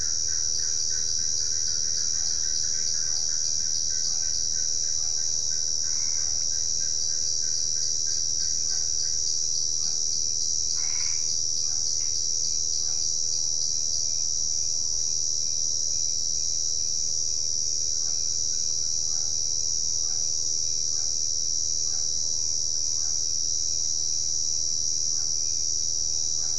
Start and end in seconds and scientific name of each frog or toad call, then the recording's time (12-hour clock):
0.5	4.4	Dendropsophus cruzi
7.0	14.1	Dendropsophus cruzi
17.9	26.5	Physalaemus cuvieri
7:15pm